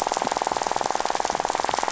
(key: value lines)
label: biophony, rattle
recorder: SoundTrap 500